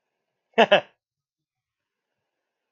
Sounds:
Laughter